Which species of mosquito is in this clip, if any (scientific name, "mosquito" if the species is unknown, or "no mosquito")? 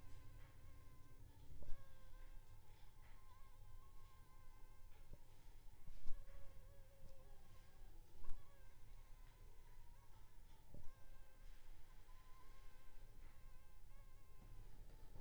Anopheles funestus s.s.